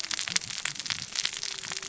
{"label": "biophony, cascading saw", "recorder": "SoundTrap 600 or HydroMoth"}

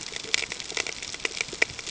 {"label": "ambient", "recorder": "HydroMoth"}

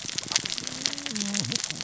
{"label": "biophony, cascading saw", "recorder": "SoundTrap 600 or HydroMoth"}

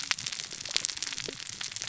{"label": "biophony, cascading saw", "recorder": "SoundTrap 600 or HydroMoth"}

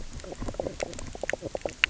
{"label": "biophony, knock croak", "recorder": "SoundTrap 300"}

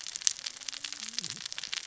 {"label": "biophony, cascading saw", "recorder": "SoundTrap 600 or HydroMoth"}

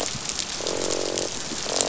{"label": "biophony, croak", "recorder": "SoundTrap 500"}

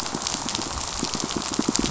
{"label": "biophony, pulse", "recorder": "SoundTrap 500"}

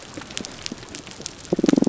{"label": "biophony, damselfish", "recorder": "SoundTrap 300"}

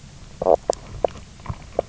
{"label": "biophony, knock croak", "recorder": "SoundTrap 300"}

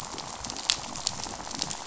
{"label": "biophony, rattle", "recorder": "SoundTrap 500"}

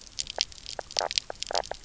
{"label": "biophony, knock croak", "recorder": "SoundTrap 300"}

